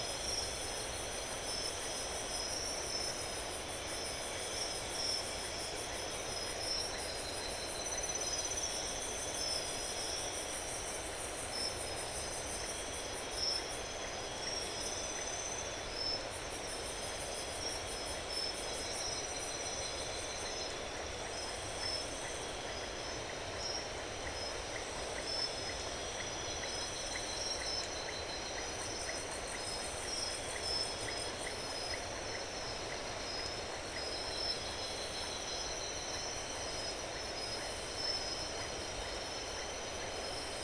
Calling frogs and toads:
Iporanga white-lipped frog (Leptodactylus notoaktites)
11pm

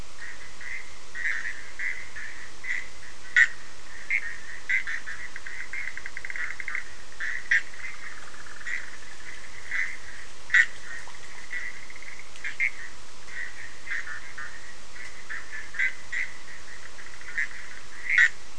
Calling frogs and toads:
Bischoff's tree frog (Boana bischoffi)
3:30am

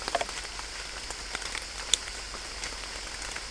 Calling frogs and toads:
none
4:30am

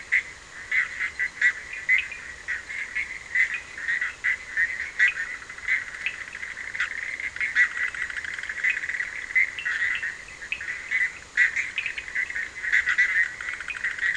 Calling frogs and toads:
Bischoff's tree frog (Boana bischoffi), Cochran's lime tree frog (Sphaenorhynchus surdus)
~2am

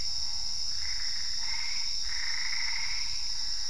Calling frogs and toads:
Boana albopunctata
1:30am

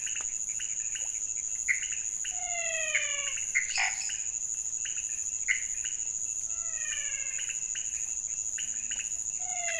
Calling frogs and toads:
pointedbelly frog (Leptodactylus podicipinus), menwig frog (Physalaemus albonotatus), lesser tree frog (Dendropsophus minutus)
~1am

